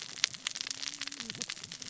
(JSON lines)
{"label": "biophony, cascading saw", "recorder": "SoundTrap 600 or HydroMoth"}